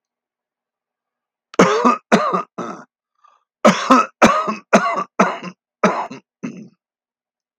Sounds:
Cough